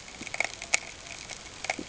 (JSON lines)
{"label": "ambient", "recorder": "HydroMoth"}